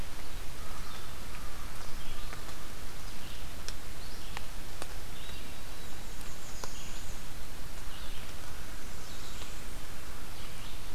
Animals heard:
Northern Parula (Setophaga americana), Red-eyed Vireo (Vireo olivaceus), Blackburnian Warbler (Setophaga fusca), American Crow (Corvus brachyrhynchos)

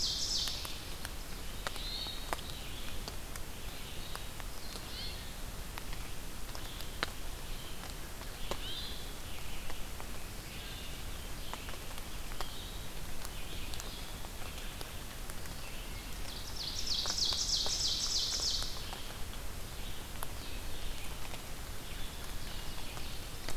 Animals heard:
Ovenbird (Seiurus aurocapilla), Red-eyed Vireo (Vireo olivaceus), Hermit Thrush (Catharus guttatus)

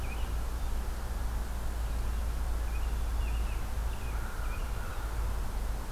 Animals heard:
American Crow (Corvus brachyrhynchos), American Robin (Turdus migratorius)

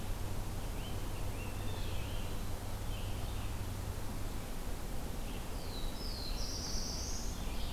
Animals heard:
Red-eyed Vireo (Vireo olivaceus), Rose-breasted Grosbeak (Pheucticus ludovicianus), Black-throated Blue Warbler (Setophaga caerulescens)

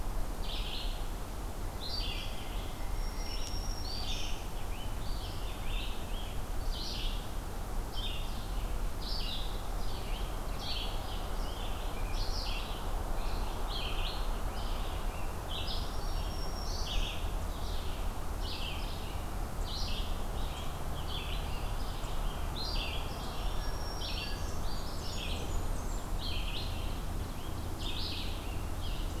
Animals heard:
Red-eyed Vireo (Vireo olivaceus), Blackburnian Warbler (Setophaga fusca), Black-throated Green Warbler (Setophaga virens)

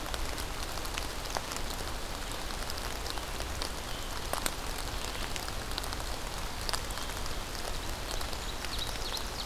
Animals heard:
Red-eyed Vireo (Vireo olivaceus), Ovenbird (Seiurus aurocapilla)

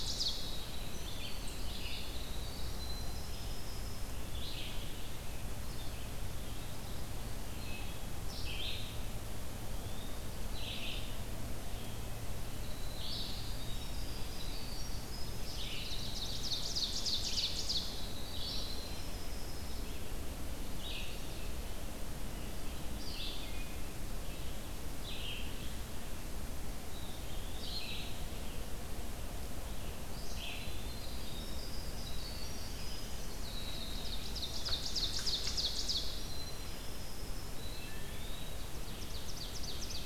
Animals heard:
Eastern Wood-Pewee (Contopus virens), Winter Wren (Troglodytes hiemalis), Red-eyed Vireo (Vireo olivaceus), Ovenbird (Seiurus aurocapilla), Wood Thrush (Hylocichla mustelina)

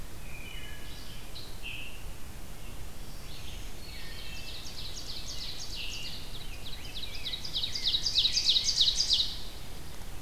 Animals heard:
Wood Thrush (Hylocichla mustelina), Black-throated Green Warbler (Setophaga virens), Red-eyed Vireo (Vireo olivaceus), Scarlet Tanager (Piranga olivacea), Ovenbird (Seiurus aurocapilla)

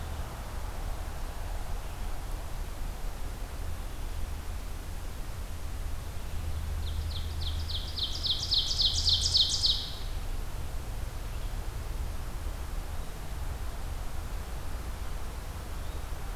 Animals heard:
Ovenbird (Seiurus aurocapilla)

